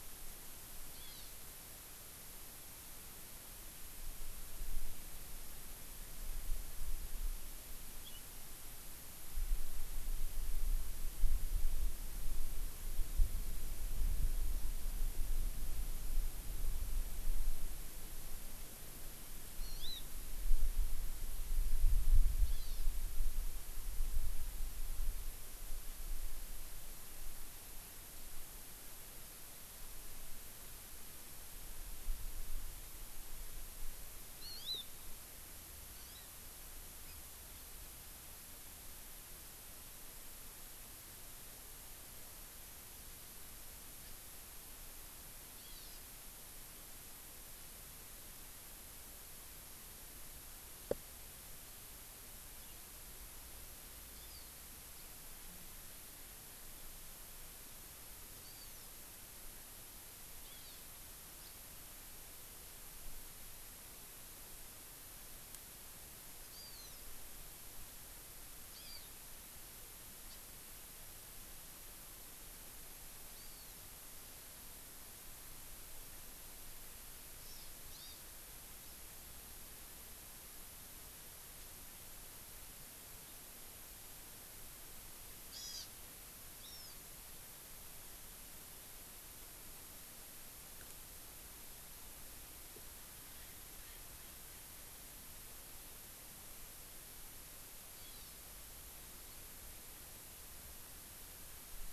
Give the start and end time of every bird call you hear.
0.9s-1.3s: Hawaii Amakihi (Chlorodrepanis virens)
19.5s-20.0s: Hawaii Amakihi (Chlorodrepanis virens)
22.4s-22.8s: Hawaii Amakihi (Chlorodrepanis virens)
34.3s-34.9s: Hawaii Amakihi (Chlorodrepanis virens)
35.9s-36.2s: Hawaii Amakihi (Chlorodrepanis virens)
45.5s-46.0s: Hawaii Amakihi (Chlorodrepanis virens)
54.1s-54.5s: Hawaii Amakihi (Chlorodrepanis virens)
58.4s-58.9s: Hawaii Amakihi (Chlorodrepanis virens)
60.4s-60.8s: Hawaii Amakihi (Chlorodrepanis virens)
61.3s-61.5s: House Finch (Haemorhous mexicanus)
66.4s-67.1s: Hawaii Amakihi (Chlorodrepanis virens)
68.7s-69.1s: Hawaii Amakihi (Chlorodrepanis virens)
70.3s-70.4s: House Finch (Haemorhous mexicanus)
73.3s-73.7s: Hawaii Amakihi (Chlorodrepanis virens)
77.4s-77.6s: Hawaii Amakihi (Chlorodrepanis virens)
77.9s-78.1s: Hawaii Amakihi (Chlorodrepanis virens)
85.5s-85.9s: Hawaii Amakihi (Chlorodrepanis virens)
86.6s-86.9s: Hawaii Amakihi (Chlorodrepanis virens)
93.3s-94.9s: Erckel's Francolin (Pternistis erckelii)
97.9s-98.3s: Hawaii Amakihi (Chlorodrepanis virens)

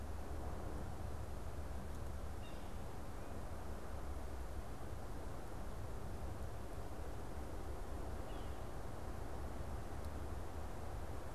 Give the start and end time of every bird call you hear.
2.4s-2.7s: Yellow-bellied Sapsucker (Sphyrapicus varius)

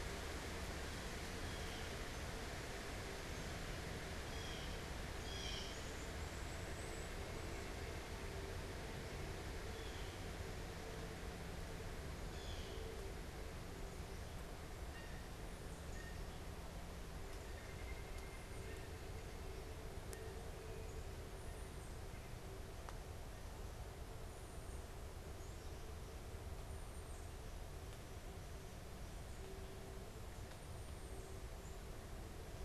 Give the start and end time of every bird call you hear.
1.2s-5.6s: Blue Jay (Cyanocitta cristata)
5.6s-7.2s: unidentified bird
9.7s-10.3s: Blue Jay (Cyanocitta cristata)
12.2s-16.5s: Blue Jay (Cyanocitta cristata)
17.2s-22.0s: White-breasted Nuthatch (Sitta carolinensis)
26.6s-27.3s: Tufted Titmouse (Baeolophus bicolor)

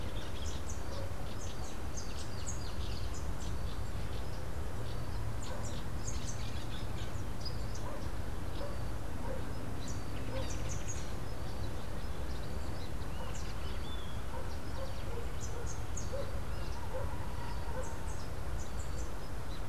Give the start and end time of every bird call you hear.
0.0s-6.2s: Rufous-capped Warbler (Basileuterus rufifrons)
9.7s-19.6s: Rufous-capped Warbler (Basileuterus rufifrons)
12.7s-14.2s: Great Kiskadee (Pitangus sulphuratus)

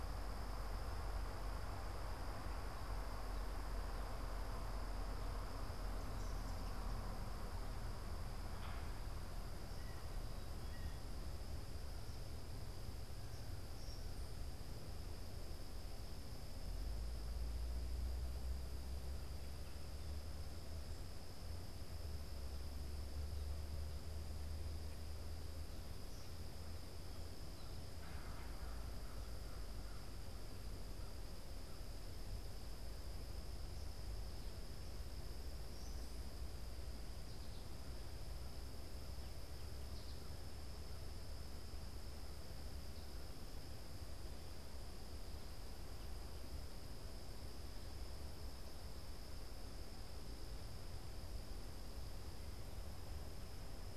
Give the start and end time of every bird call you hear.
0.0s-6.9s: Eastern Kingbird (Tyrannus tyrannus)
9.5s-11.2s: Blue Jay (Cyanocitta cristata)
10.5s-14.9s: Eastern Kingbird (Tyrannus tyrannus)
27.7s-30.5s: American Crow (Corvus brachyrhynchos)
35.4s-36.6s: Eastern Kingbird (Tyrannus tyrannus)
37.1s-40.7s: American Goldfinch (Spinus tristis)

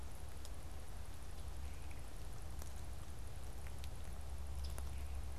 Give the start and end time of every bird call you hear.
4.4s-5.3s: Scarlet Tanager (Piranga olivacea)

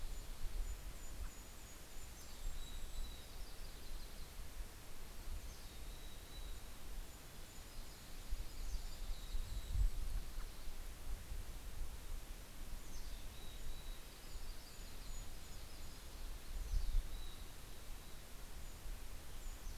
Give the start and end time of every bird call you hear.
0.0s-1.4s: Yellow-rumped Warbler (Setophaga coronata)
0.0s-1.9s: American Robin (Turdus migratorius)
0.0s-4.1s: Golden-crowned Kinglet (Regulus satrapa)
1.8s-3.3s: Mountain Chickadee (Poecile gambeli)
3.3s-5.3s: Yellow-rumped Warbler (Setophaga coronata)
6.1s-9.6s: Golden-crowned Kinglet (Regulus satrapa)
7.5s-11.4s: Yellow-rumped Warbler (Setophaga coronata)
8.1s-9.8s: Mountain Chickadee (Poecile gambeli)
9.4s-11.7s: American Robin (Turdus migratorius)
12.2s-16.5s: Golden-crowned Kinglet (Regulus satrapa)
12.5s-14.4s: Mountain Chickadee (Poecile gambeli)
14.0s-17.5s: Yellow-rumped Warbler (Setophaga coronata)
16.5s-18.2s: Mountain Chickadee (Poecile gambeli)
18.1s-19.8s: Golden-crowned Kinglet (Regulus satrapa)

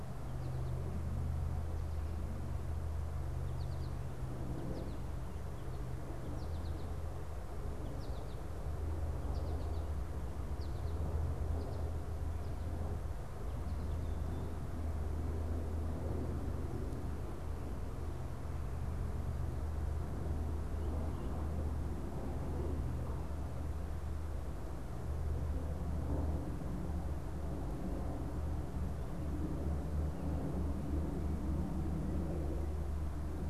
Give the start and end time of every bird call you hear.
3.5s-12.2s: American Goldfinch (Spinus tristis)

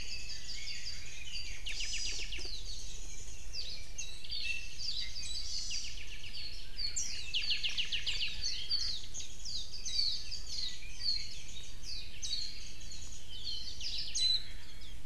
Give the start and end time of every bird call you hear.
0.0s-1.6s: Warbling White-eye (Zosterops japonicus)
0.8s-1.3s: Omao (Myadestes obscurus)
1.6s-2.5s: Apapane (Himatione sanguinea)
1.7s-2.3s: Hawaii Amakihi (Chlorodrepanis virens)
2.3s-13.3s: Warbling White-eye (Zosterops japonicus)
4.4s-4.8s: Iiwi (Drepanis coccinea)
5.4s-6.0s: Hawaii Amakihi (Chlorodrepanis virens)
5.6s-6.6s: Apapane (Himatione sanguinea)
7.3s-8.4s: Apapane (Himatione sanguinea)
8.6s-9.0s: Omao (Myadestes obscurus)
9.7s-12.3s: Red-billed Leiothrix (Leiothrix lutea)
13.7s-14.5s: Warbling White-eye (Zosterops japonicus)
14.2s-14.8s: Omao (Myadestes obscurus)
14.8s-15.0s: Warbling White-eye (Zosterops japonicus)

